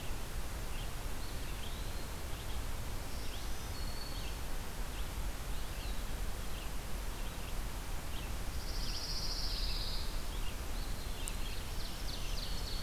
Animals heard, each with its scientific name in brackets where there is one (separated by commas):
Eastern Wood-Pewee (Contopus virens), Ovenbird (Seiurus aurocapilla), Black-throated Green Warbler (Setophaga virens), Pine Warbler (Setophaga pinus), Red-eyed Vireo (Vireo olivaceus)